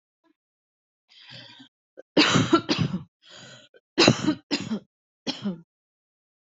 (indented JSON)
{
  "expert_labels": [
    {
      "quality": "good",
      "cough_type": "unknown",
      "dyspnea": false,
      "wheezing": false,
      "stridor": false,
      "choking": false,
      "congestion": false,
      "nothing": true,
      "diagnosis": "upper respiratory tract infection",
      "severity": "mild"
    }
  ],
  "age": 40,
  "gender": "female",
  "respiratory_condition": false,
  "fever_muscle_pain": false,
  "status": "symptomatic"
}